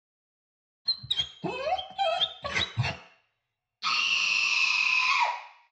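At 0.85 seconds, you can hear a dog. After that, at 3.81 seconds, someone screams.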